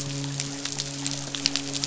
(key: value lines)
label: biophony, midshipman
recorder: SoundTrap 500